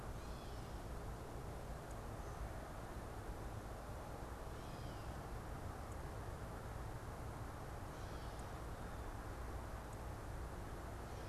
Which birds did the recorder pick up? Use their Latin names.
Dumetella carolinensis